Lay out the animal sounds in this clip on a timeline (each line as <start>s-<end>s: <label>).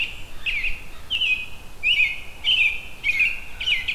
0.0s-3.9s: American Robin (Turdus migratorius)